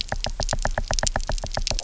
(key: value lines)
label: biophony, knock
recorder: SoundTrap 300